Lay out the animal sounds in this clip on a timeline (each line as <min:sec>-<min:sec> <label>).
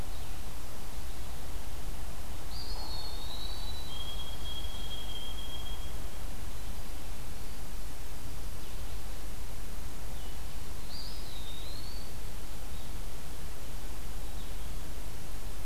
0:00.0-0:15.7 Blue-headed Vireo (Vireo solitarius)
0:02.4-0:03.7 Eastern Wood-Pewee (Contopus virens)
0:02.6-0:06.2 White-throated Sparrow (Zonotrichia albicollis)
0:10.8-0:12.1 Eastern Wood-Pewee (Contopus virens)